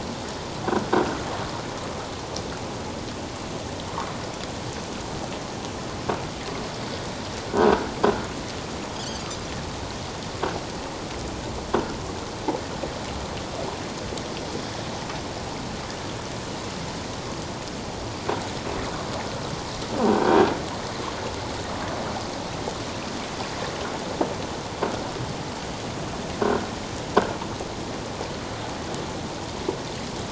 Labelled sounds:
9.1	9.4	Pacific white-sided dolphin, 4.4 to 4.9 kHz
20.0	20.5	croaking sound likely from a nearby submerged object, 1.5 to 1.7 kHz

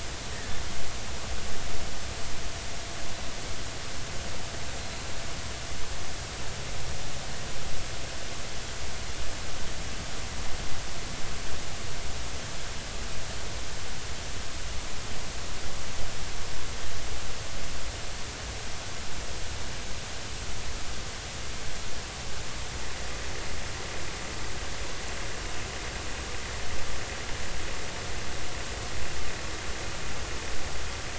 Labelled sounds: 0.3	0.6	killer whale, 1.7 to 1.9 kHz

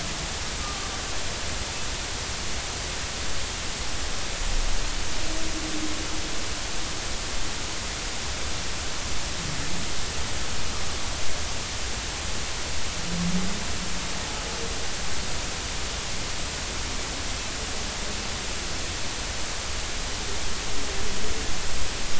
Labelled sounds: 0.6	0.9	humpback whale, 1.1 to 1.2 kHz

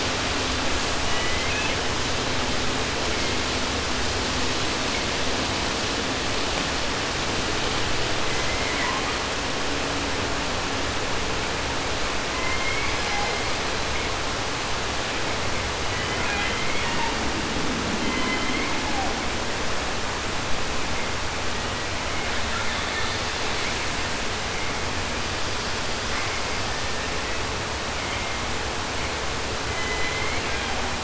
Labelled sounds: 1.0	1.9	killer whale, southern resident, J pod, call S01, 0.10 to 3.9 kHz
3.1	3.6	killer whale, 1.1 to 4.0 kHz
8.2	9.3	killer whale, 0.56 to 3.9 kHz
12.3	13.8	killer whale, southern resident, J pod, call S01, 0.10 to 8.0 kHz
15.8	17.3	killer whale, southern resident, J pod, call S01, 0.10 to 5.8 kHz
17.9	19.4	killer whale, southern resident, J pod, call S01, 0.13 to 4.8 kHz
21.4	24.0	killer whale, southern resident, 0.10 to 4.9 kHz
26.6	27.6	killer whale, southern resident, J pod, call S01, 0.36 to 4.1 kHz
27.9	28.8	killer whale, southern resident, J pod, call S01, 0.50 to 4.0 kHz
29.6	31.0	killer whale, southern resident, J pod, call S01, 0.10 to 4.7 kHz

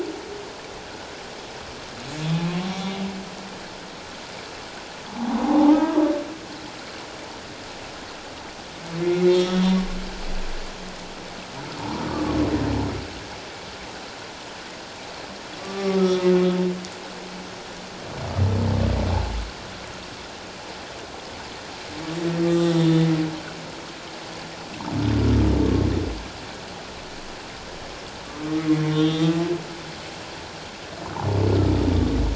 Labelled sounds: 5.3	6.0	humpback whale, 0.78 to 1.7 kHz
9.0	9.7	humpback whale, 1.2 to 3.4 kHz
15.6	16.3	humpback whale, 1.1 to 1.3 kHz
22.4	22.8	humpback whale, 1.2 to 3.6 kHz
28.9	29.4	humpback whale, 1.1 to 3.8 kHz

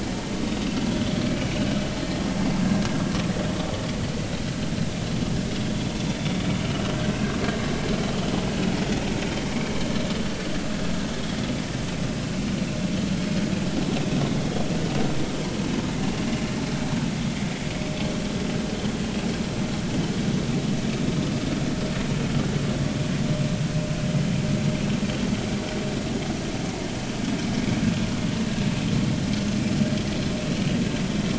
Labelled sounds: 9.5	9.7	vessel noise, 2.1 to 2.4 kHz

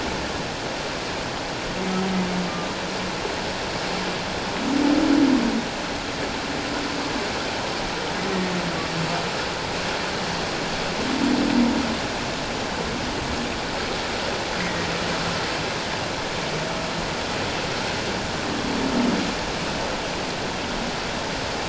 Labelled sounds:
14.6	14.9	humpback whale, 1.8 to 2.2 kHz

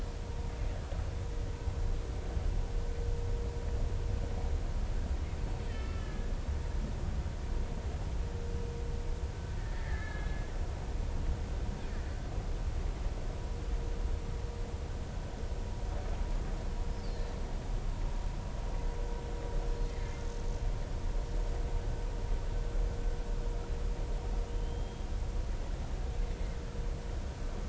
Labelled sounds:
5.7	6.3	killer whale, Bigg's (transient), 1.2 to 2.3 kHz
6.7	7.0	killer whale, Bigg's (transient), 2.6 to 2.7 kHz
9.6	10.4	killer whale, Bigg's (transient), 1.6 to 3.9 kHz
19.7	20.2	killer whale, Bigg's (transient), 1.7 to 4.3 kHz
24.5	25.1	killer whale, Bigg's (transient), 2.9 to 3.3 kHz

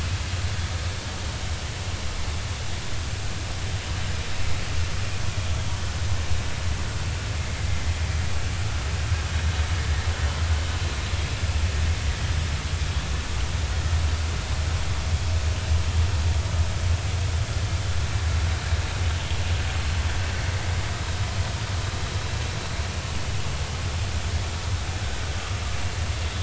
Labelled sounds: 25.3	25.6	vessel noise, 1.1 to 1.3 kHz

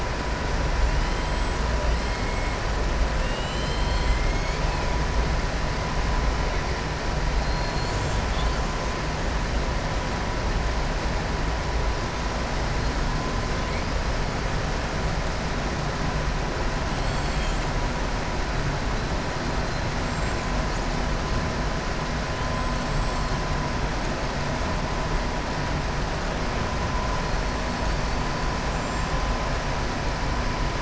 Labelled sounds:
3.1	4.6	killer whale, southern resident, 1.8 to 5.1 kHz
16.9	17.7	killer whale, southern resident, 2.5 to 7.8 kHz
20.0	20.4	killer whale, southern resident, 6.8 to 8.0 kHz

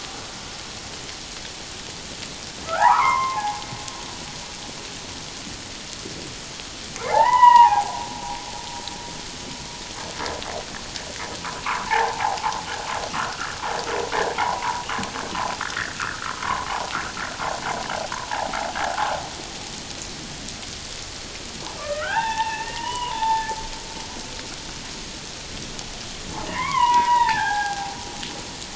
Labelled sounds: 2.7	3.6	humpback whale, 0.78 to 2.4 kHz
7.1	8.0	humpback whale, 0.78 to 3.0 kHz
11.9	12.6	humpback whale, 0.78 to 1.1 kHz
13.1	13.6	humpback whale, 1.0 to 1.8 kHz
14.4	14.8	humpback whale, 0.78 to 1.2 kHz
15.6	16.7	humpback whale, 0.91 to 2.0 kHz
18.3	18.6	humpback whale, 0.78 to 0.97 kHz
21.7	23.6	humpback whale, 0.78 to 3.7 kHz
26.5	28.0	humpback whale, 0.78 to 3.4 kHz

